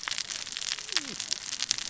{"label": "biophony, cascading saw", "recorder": "SoundTrap 600 or HydroMoth"}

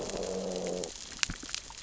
{"label": "biophony, growl", "recorder": "SoundTrap 600 or HydroMoth"}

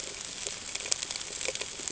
{"label": "ambient", "recorder": "HydroMoth"}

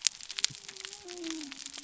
{"label": "biophony", "recorder": "SoundTrap 300"}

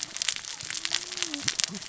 {"label": "biophony, cascading saw", "recorder": "SoundTrap 600 or HydroMoth"}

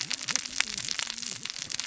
{"label": "biophony, cascading saw", "recorder": "SoundTrap 600 or HydroMoth"}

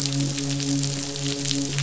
{"label": "biophony, midshipman", "recorder": "SoundTrap 500"}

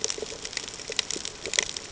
{"label": "ambient", "recorder": "HydroMoth"}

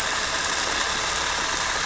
{"label": "anthrophony, boat engine", "recorder": "SoundTrap 300"}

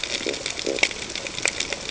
{"label": "ambient", "recorder": "HydroMoth"}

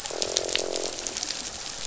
{"label": "biophony, croak", "recorder": "SoundTrap 500"}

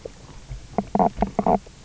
{"label": "biophony, knock croak", "recorder": "SoundTrap 300"}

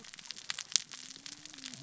{"label": "biophony, cascading saw", "recorder": "SoundTrap 600 or HydroMoth"}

